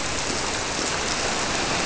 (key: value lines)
label: biophony
recorder: SoundTrap 300